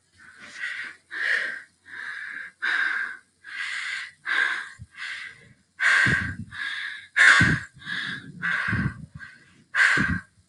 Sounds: Sigh